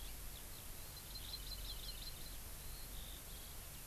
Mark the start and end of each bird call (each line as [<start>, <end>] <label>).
[0.00, 3.86] Eurasian Skylark (Alauda arvensis)
[0.90, 2.29] Hawaii Amakihi (Chlorodrepanis virens)